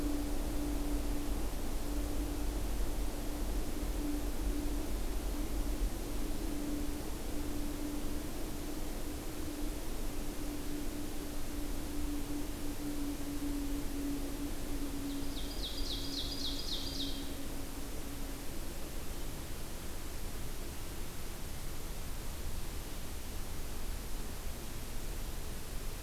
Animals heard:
Ovenbird (Seiurus aurocapilla)

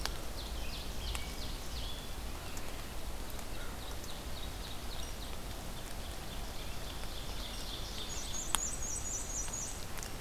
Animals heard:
Black-and-white Warbler (Mniotilta varia), Ovenbird (Seiurus aurocapilla), American Robin (Turdus migratorius)

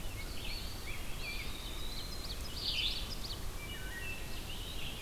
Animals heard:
Rose-breasted Grosbeak (Pheucticus ludovicianus), Red-eyed Vireo (Vireo olivaceus), Wood Thrush (Hylocichla mustelina), Eastern Wood-Pewee (Contopus virens), Ovenbird (Seiurus aurocapilla)

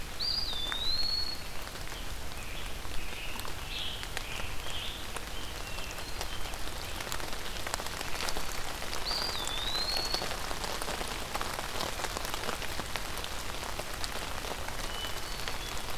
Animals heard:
Eastern Wood-Pewee (Contopus virens), Hermit Thrush (Catharus guttatus), Scarlet Tanager (Piranga olivacea)

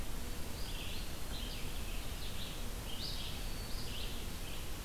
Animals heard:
Red-eyed Vireo (Vireo olivaceus)

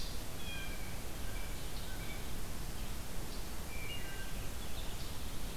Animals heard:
Blue Jay (Cyanocitta cristata), Wood Thrush (Hylocichla mustelina)

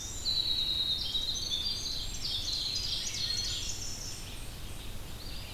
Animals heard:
Eastern Wood-Pewee (Contopus virens), Red-eyed Vireo (Vireo olivaceus), Winter Wren (Troglodytes hiemalis), Ovenbird (Seiurus aurocapilla)

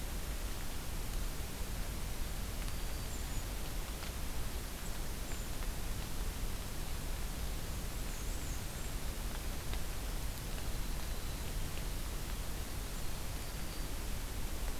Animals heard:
Black-throated Green Warbler (Setophaga virens), Black-and-white Warbler (Mniotilta varia), Winter Wren (Troglodytes hiemalis)

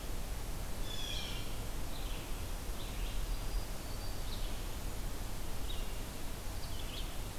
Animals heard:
Black-throated Green Warbler (Setophaga virens), Blue Jay (Cyanocitta cristata), Red-eyed Vireo (Vireo olivaceus)

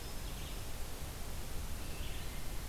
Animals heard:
Blue-headed Vireo (Vireo solitarius)

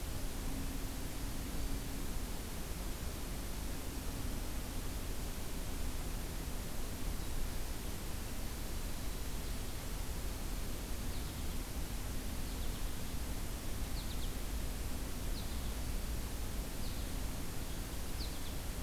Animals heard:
American Goldfinch (Spinus tristis)

